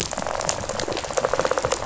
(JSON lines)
{"label": "biophony, rattle response", "recorder": "SoundTrap 500"}